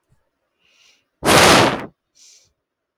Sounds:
Sigh